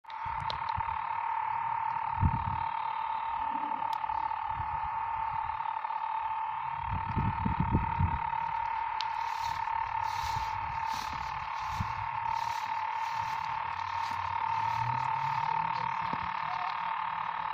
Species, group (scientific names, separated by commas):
Cystosoma saundersii, Cicadidae